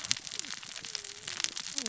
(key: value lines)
label: biophony, cascading saw
recorder: SoundTrap 600 or HydroMoth